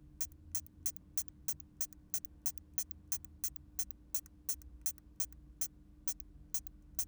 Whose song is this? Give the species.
Isophya camptoxypha